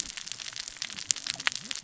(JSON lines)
{"label": "biophony, cascading saw", "recorder": "SoundTrap 600 or HydroMoth"}